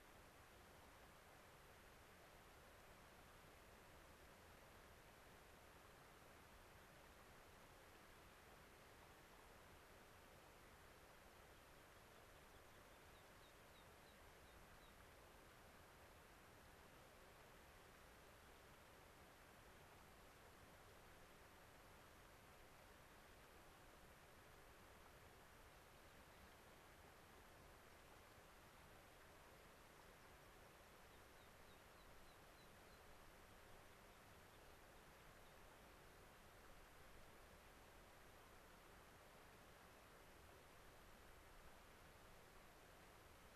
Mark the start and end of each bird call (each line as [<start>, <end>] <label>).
[12.99, 15.09] American Pipit (Anthus rubescens)
[30.99, 33.09] American Pipit (Anthus rubescens)